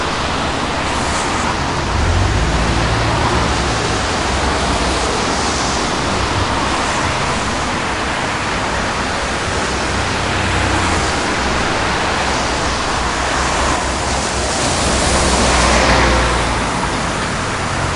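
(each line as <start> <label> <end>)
0.0 Heavy rain in the background. 18.0
1.9 A car accelerates. 4.6
14.5 A car passes by. 16.5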